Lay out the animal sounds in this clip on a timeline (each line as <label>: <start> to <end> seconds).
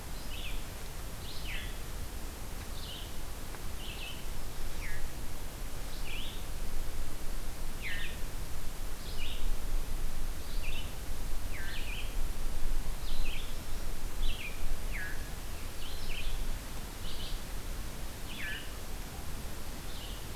Red-eyed Vireo (Vireo olivaceus): 0.0 to 20.4 seconds